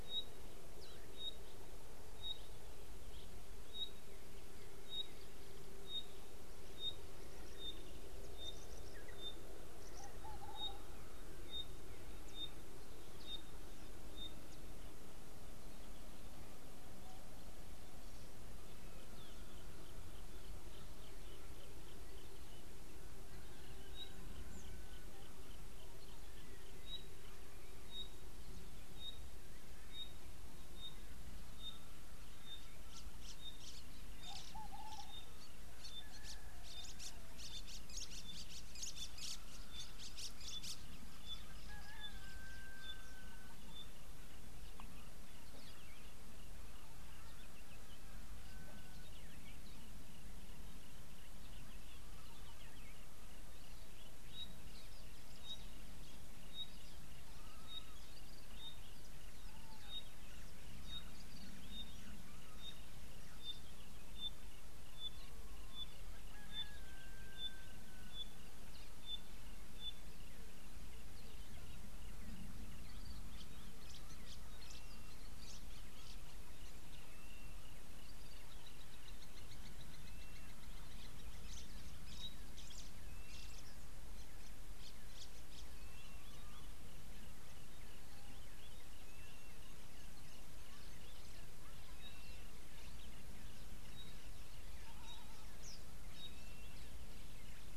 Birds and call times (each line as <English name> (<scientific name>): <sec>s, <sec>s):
Pygmy Batis (Batis perkeo): 6.0s, 31.6s, 41.3s, 61.0s, 66.6s, 82.2s, 95.1s
Cardinal Woodpecker (Chloropicus fuscescens): 8.7s, 10.0s
White-browed Sparrow-Weaver (Plocepasser mahali): 34.4s, 39.2s, 75.5s, 82.7s
Blue-naped Mousebird (Urocolius macrourus): 75.0s, 92.2s